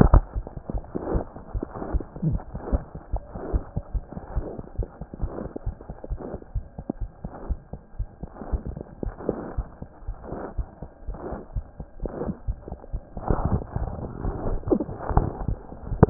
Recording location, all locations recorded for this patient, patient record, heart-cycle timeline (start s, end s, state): pulmonary valve (PV)
aortic valve (AV)+pulmonary valve (PV)+mitral valve (MV)
#Age: Infant
#Sex: Female
#Height: 57.0 cm
#Weight: 4.8 kg
#Pregnancy status: False
#Murmur: Absent
#Murmur locations: nan
#Most audible location: nan
#Systolic murmur timing: nan
#Systolic murmur shape: nan
#Systolic murmur grading: nan
#Systolic murmur pitch: nan
#Systolic murmur quality: nan
#Diastolic murmur timing: nan
#Diastolic murmur shape: nan
#Diastolic murmur grading: nan
#Diastolic murmur pitch: nan
#Diastolic murmur quality: nan
#Outcome: Abnormal
#Campaign: 2014 screening campaign
0.00	3.12	unannotated
3.12	3.22	S1
3.22	3.32	systole
3.32	3.38	S2
3.38	3.52	diastole
3.52	3.62	S1
3.62	3.76	systole
3.76	3.82	S2
3.82	3.94	diastole
3.94	4.04	S1
4.04	4.12	systole
4.12	4.20	S2
4.20	4.34	diastole
4.34	4.46	S1
4.46	4.54	systole
4.54	4.64	S2
4.64	4.78	diastole
4.78	4.88	S1
4.88	4.98	systole
4.98	5.06	S2
5.06	5.22	diastole
5.22	5.32	S1
5.32	5.40	systole
5.40	5.50	S2
5.50	5.66	diastole
5.66	5.76	S1
5.76	5.86	systole
5.86	5.96	S2
5.96	6.10	diastole
6.10	6.20	S1
6.20	6.30	systole
6.30	6.40	S2
6.40	6.54	diastole
6.54	6.64	S1
6.64	6.76	systole
6.76	6.84	S2
6.84	7.00	diastole
7.00	7.10	S1
7.10	7.22	systole
7.22	7.32	S2
7.32	7.48	diastole
7.48	7.58	S1
7.58	7.72	systole
7.72	7.80	S2
7.80	7.98	diastole
7.98	8.08	S1
8.08	8.22	systole
8.22	8.30	S2
8.30	8.50	diastole
8.50	8.62	S1
8.62	8.72	systole
8.72	8.82	S2
8.82	9.04	diastole
9.04	9.14	S1
9.14	9.26	systole
9.26	9.38	S2
9.38	9.56	diastole
9.56	9.66	S1
9.66	9.82	systole
9.82	9.90	S2
9.90	10.08	diastole
10.08	10.16	S1
10.16	10.30	systole
10.30	10.40	S2
10.40	10.56	diastole
10.56	10.66	S1
10.66	10.82	systole
10.82	10.90	S2
10.90	11.10	diastole
11.10	11.18	S1
11.18	11.30	systole
11.30	11.40	S2
11.40	11.56	diastole
11.56	11.64	S1
11.64	11.78	systole
11.78	11.86	S2
11.86	12.04	diastole
12.04	12.12	S1
12.12	12.24	systole
12.24	12.34	S2
12.34	12.48	diastole
12.48	12.56	S1
12.56	12.68	systole
12.68	12.78	S2
12.78	12.94	diastole
12.94	16.10	unannotated